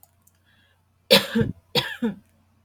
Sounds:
Cough